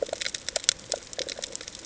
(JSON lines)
{"label": "ambient", "recorder": "HydroMoth"}